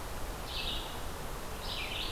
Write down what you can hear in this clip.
Red-eyed Vireo